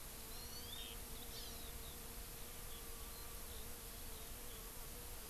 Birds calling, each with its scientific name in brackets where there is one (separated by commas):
Hawaii Amakihi (Chlorodrepanis virens), Eurasian Skylark (Alauda arvensis)